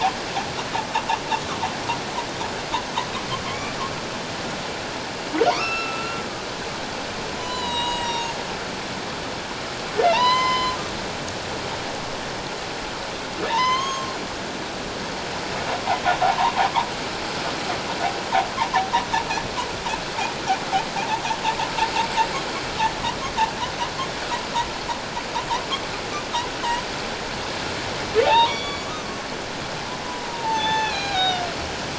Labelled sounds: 3.5	3.7	humpback whale, 2.0 to 2.4 kHz
5.5	6.2	humpback whale, 0.91 to 4.1 kHz
7.4	8.4	humpback whale, 0.88 to 7.8 kHz
10.0	10.8	humpback whale, 0.84 to 5.2 kHz
13.5	14.1	humpback whale, 0.84 to 6.6 kHz
16.2	16.5	humpback whale, 0.78 to 1.1 kHz
21.0	21.2	humpback whale, 0.78 to 0.97 kHz
28.2	28.8	humpback whale, 0.78 to 4.7 kHz
30.0	31.5	humpback whale, 0.78 to 6.3 kHz

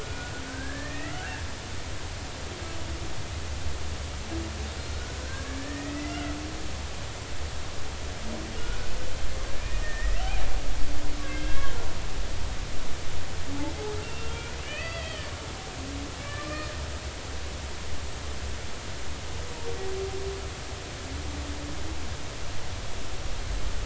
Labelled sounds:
0.0	1.4	humpback whale, 1.3 to 2.0 kHz
5.6	6.3	humpback whale, 1.7 to 3.0 kHz
9.6	10.2	humpback whale, 1.8 to 2.0 kHz
11.2	11.8	humpback whale, 1.5 to 3.4 kHz
14.3	16.8	humpback whale, 1.1 to 4.8 kHz

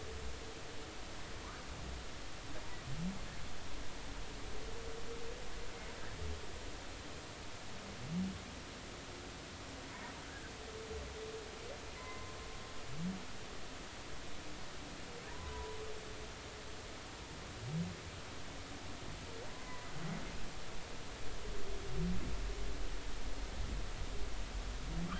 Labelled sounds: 12.0	12.4	humpback whale, 0.96 to 2.1 kHz
15.3	15.8	humpback whale, 0.90 to 1.1 kHz

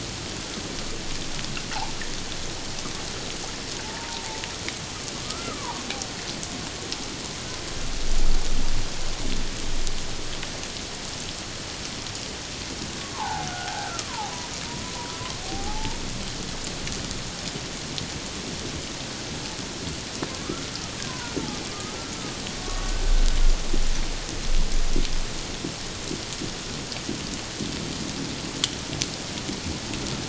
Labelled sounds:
3.8	4.3	humpback whale, 0.81 to 0.97 kHz
5.2	5.8	humpback whale, 0.78 to 1.4 kHz
13.0	14.3	humpback whale, 0.78 to 1.6 kHz
15.4	16.0	humpback whale, 0.78 to 0.97 kHz
20.4	21.3	humpback whale, 0.91 to 1.4 kHz
21.7	23.1	humpback whale, 1.1 to 1.6 kHz

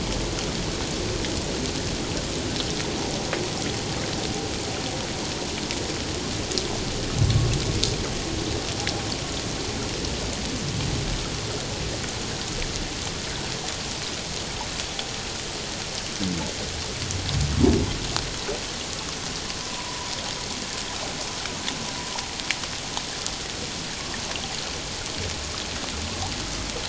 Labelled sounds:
19.6	20.1	vessel noise, 0.94 to 1.1 kHz

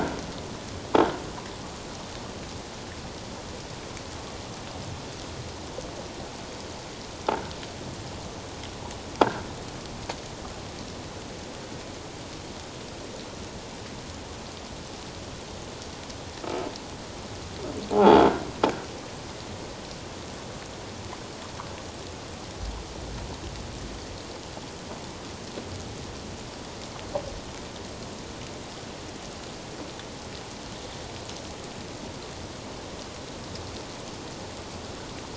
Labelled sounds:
16.4	16.7	croaking sound likely from a nearby submerged object, 1.2 to 1.4 kHz
17.9	18.2	croaking sound likely from a nearby submerged object, 0.78 to 0.94 kHz

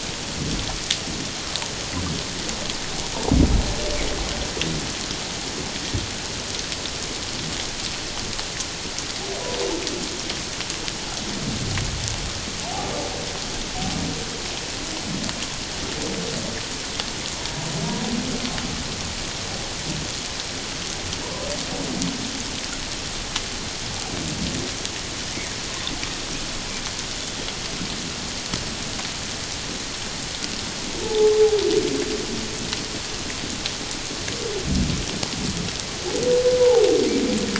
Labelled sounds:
21.2	21.5	humpback whale, 0.91 to 1.1 kHz
31.0	31.6	humpback whale, 0.78 to 0.91 kHz

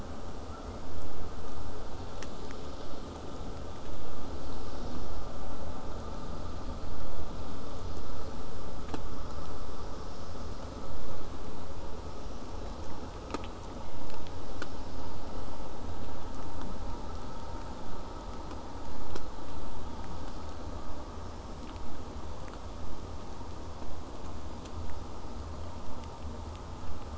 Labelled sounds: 20.8	25.8	vessel noise, 0 to 8.0 kHz

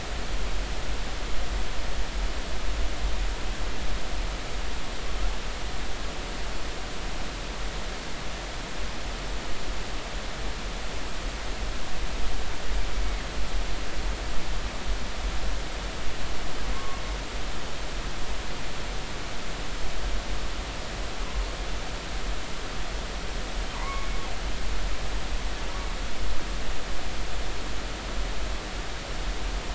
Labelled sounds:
16.7	17.0	killer whale, northern resident, G clan, call N23i, 0.99 to 1.2 kHz
23.7	24.2	killer whale, northern resident, G clan, call N23i, 0.90 to 2.3 kHz

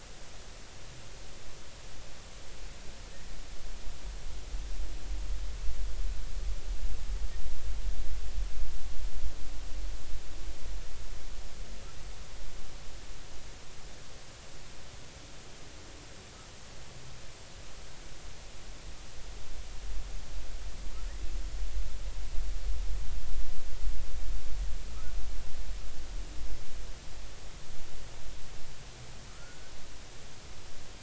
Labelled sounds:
29.3	29.7	humpback whale, 1.2 to 1.6 kHz

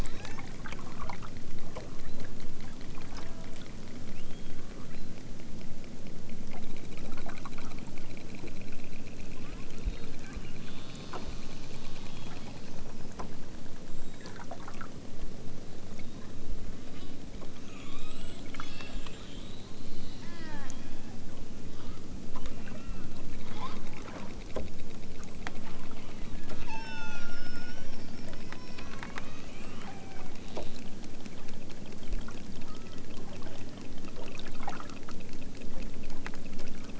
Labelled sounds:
0.0	0.5	killer whale, southern Alaska resident, 0.46 to 7.0 kHz
1.8	2.3	killer whale, southern Alaska resident, 0.88 to 4.4 kHz
3.1	3.6	killer whale, southern Alaska resident, 0.55 to 1.9 kHz
4.6	5.1	killer whale, southern Alaska resident, 0.78 to 4.3 kHz
9.3	9.8	killer whale, southern Alaska resident, 0.78 to 3.7 kHz
10.5	12.9	killer whale, southern Alaska resident, 0.88 to 5.9 kHz
16.8	17.3	killer whale, southern Alaska resident, 0.88 to 5.3 kHz
18.4	19.1	killer whale, southern Alaska resident, 0.88 to 6.3 kHz
20.2	21.2	killer whale, southern Alaska resident, 0.41 to 3.6 kHz
22.5	23.1	killer whale, southern Alaska resident, 0.64 to 3.0 kHz
26.6	27.3	killer whale, southern Alaska resident, 0.55 to 7.6 kHz
28.1	30.9	killer whale, southern Alaska resident, 0.51 to 4.9 kHz
32.6	33.2	killer whale, southern Alaska resident, 0.88 to 3.7 kHz

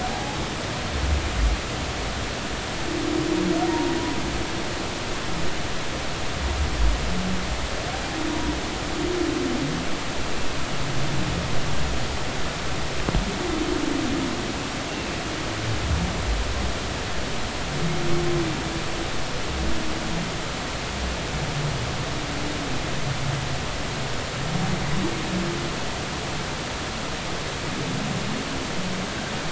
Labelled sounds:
0.0	0.4	humpback whale, 0.80 to 0.90 kHz
3.7	3.9	humpback whale, 0.90 to 0.99 kHz
8.3	8.5	humpback whale, 0.93 to 0.99 kHz

